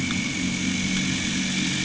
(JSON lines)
{"label": "anthrophony, boat engine", "recorder": "HydroMoth"}